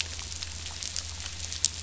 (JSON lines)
{"label": "anthrophony, boat engine", "recorder": "SoundTrap 500"}